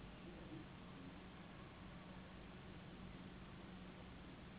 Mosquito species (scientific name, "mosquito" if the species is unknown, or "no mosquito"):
Anopheles gambiae s.s.